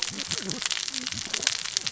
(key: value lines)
label: biophony, cascading saw
recorder: SoundTrap 600 or HydroMoth